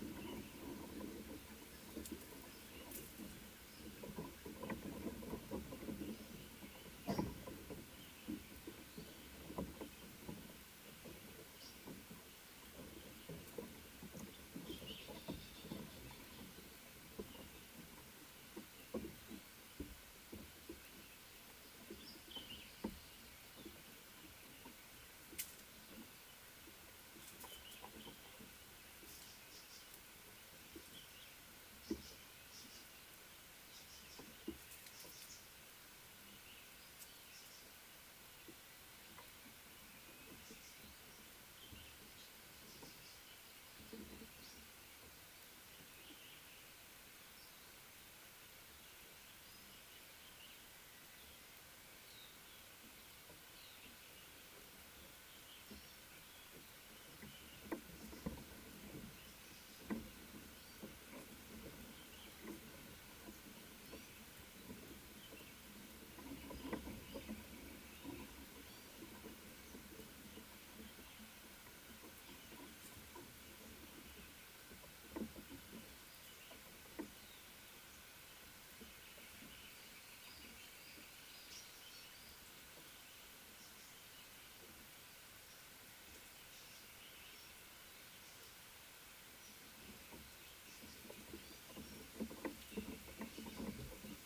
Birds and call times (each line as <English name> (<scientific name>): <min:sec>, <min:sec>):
Tawny-flanked Prinia (Prinia subflava): 0:32.0, 0:40.5
African Paradise-Flycatcher (Terpsiphone viridis): 0:44.5